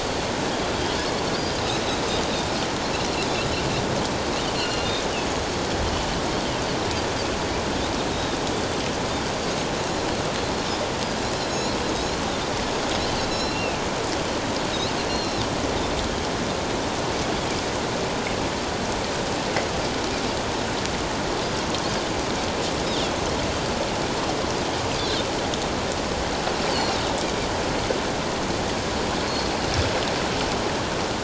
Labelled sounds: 1.4	1.9	Pacific white-sided dolphin, 3.6 to 4.9 kHz
4.5	5.6	Pacific white-sided dolphin, 2.7 to 6.8 kHz
8.1	8.4	Pacific white-sided dolphin, 3.5 to 3.9 kHz
11.4	12.2	Pacific white-sided dolphin, 3.9 to 7.0 kHz
13.3	13.8	Pacific white-sided dolphin, 2.3 to 6.8 kHz
15.1	15.5	Pacific white-sided dolphin, 2.7 to 4.3 kHz
22.8	23.1	Pacific white-sided dolphin, 3.1 to 3.9 kHz

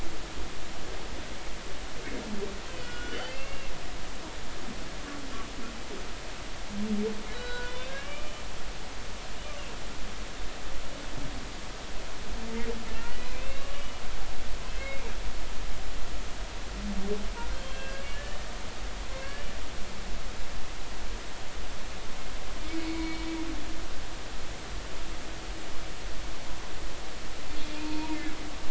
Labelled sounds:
2.7	3.7	humpback whale, 1.4 to 3.2 kHz
7.3	8.3	humpback whale, 0.93 to 4.0 kHz
13.0	14.1	humpback whale, 1.8 to 3.9 kHz
14.8	15.0	humpback whale, 2.1 to 2.2 kHz
17.5	19.5	humpback whale, 1.5 to 3.3 kHz
22.8	23.3	humpback whale, 2.1 to 2.3 kHz
27.6	28.3	humpback whale, 0.90 to 3.4 kHz

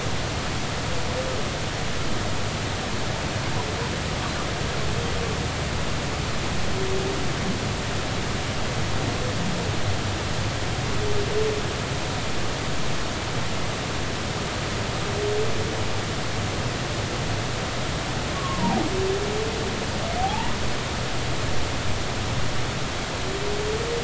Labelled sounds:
18.3	18.8	humpback whale, 0.80 to 1.2 kHz
20.2	20.6	humpback whale, 0.80 to 1.1 kHz

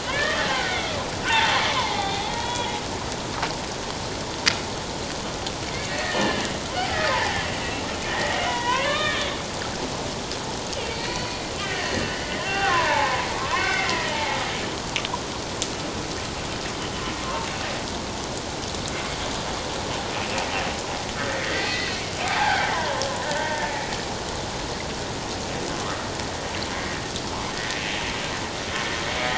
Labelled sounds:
0.1	1.0	humpback whale, 1.4 to 3.7 kHz
1.3	2.7	humpback whale, 0.78 to 3.4 kHz
5.7	6.4	humpback whale, 1.7 to 3.2 kHz
6.9	7.4	humpback whale, 0.78 to 1.4 kHz
8.1	9.3	humpback whale, 0.91 to 3.8 kHz
10.9	14.4	humpback whale, 0.78 to 4.6 kHz
21.2	23.7	humpback whale, 0.78 to 2.1 kHz

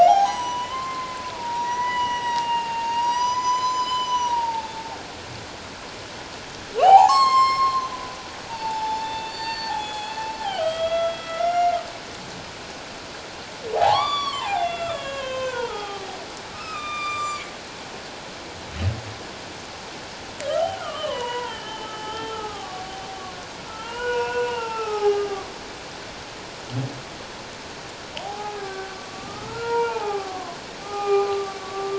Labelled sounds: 0.0	4.8	humpback whale, 0.78 to 8.0 kHz
6.8	7.9	humpback whale, 0.78 to 7.7 kHz
8.5	11.8	humpback whale, 0.81 to 6.9 kHz
13.7	17.5	humpback whale, 0.78 to 8.0 kHz
20.7	22.8	humpback whale, 0.78 to 3.2 kHz
23.7	25.3	humpback whale, 0.78 to 5.7 kHz
28.2	31.9	humpback whale, 0.78 to 2.5 kHz

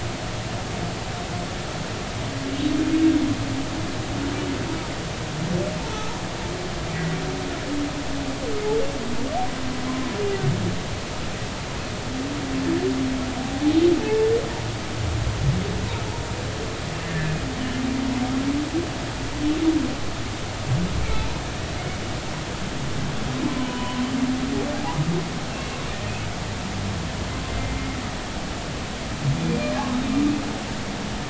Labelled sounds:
5.8	6.2	humpback whale, 0.83 to 0.99 kHz
9.9	10.1	humpback whale, 0.93 to 1.1 kHz
17.1	17.4	humpback whale, 1.7 to 1.9 kHz
23.5	24.0	humpback whale, 0.93 to 3.1 kHz
27.5	28.0	humpback whale, 2.0 to 2.2 kHz

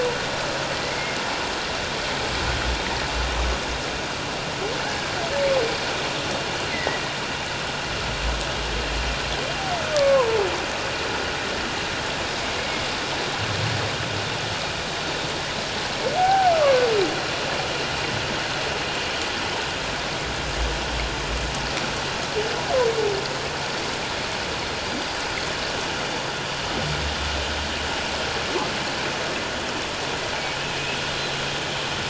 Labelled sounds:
0.8	1.2	humpback whale, 1.9 to 2.2 kHz
4.8	5.1	humpback whale, 1.4 to 1.8 kHz
6.7	7.0	humpback whale, 1.8 to 2.2 kHz
9.9	10.4	humpback whale, 0.78 to 1.2 kHz
12.6	12.8	humpback whale, 2.1 to 2.2 kHz
16.2	16.5	humpback whale, 0.78 to 1.6 kHz
24.8	25.2	humpback whale, 4.7 to 4.8 kHz

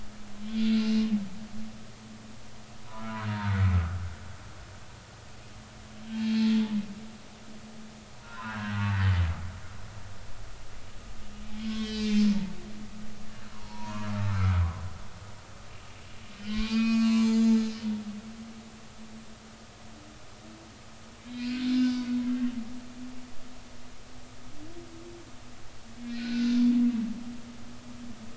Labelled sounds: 0.8	1.2	humpback whale, 2.7 to 2.9 kHz
2.9	3.2	humpback whale, 0.86 to 1.5 kHz
3.7	4.0	humpback whale, 1.2 to 1.6 kHz
8.2	9.0	humpback whale, 0.86 to 1.7 kHz
11.5	12.3	humpback whale, 2.3 to 7.4 kHz
13.5	14.5	humpback whale, 0.80 to 1.4 kHz
16.4	17.5	humpback whale, 0.83 to 7.5 kHz
21.3	22.5	humpback whale, 1.4 to 4.4 kHz
26.1	26.6	humpback whale, 1.4 to 4.3 kHz

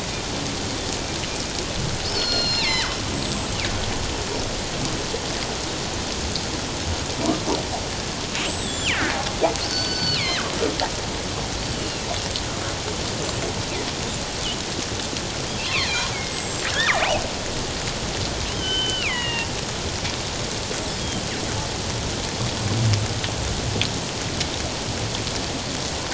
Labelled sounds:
2.1	3.6	killer whale, northern resident, G clan, 1.4 to 7.8 kHz
8.4	10.4	killer whale, northern resident, G clan, 1.4 to 7.8 kHz
11.7	12.1	killer whale, northern resident, G clan, 2.6 to 3.0 kHz
15.8	17.2	killer whale, northern resident, G clan, 1.4 to 8.0 kHz
18.5	19.5	killer whale, northern resident, G clan, 1.2 to 3.4 kHz
21.0	21.3	killer whale, northern resident, G clan, 3.0 to 3.3 kHz

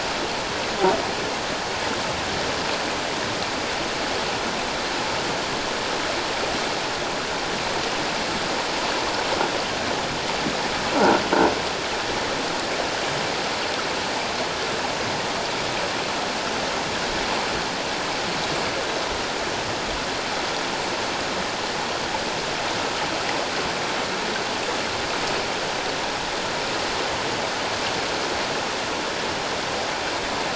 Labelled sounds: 10.9	11.2	croaking sound likely from a nearby submerged object, 1.3 to 1.6 kHz

